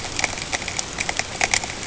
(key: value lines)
label: ambient
recorder: HydroMoth